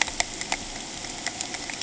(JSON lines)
{"label": "ambient", "recorder": "HydroMoth"}